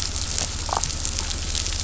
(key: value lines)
label: anthrophony, boat engine
recorder: SoundTrap 500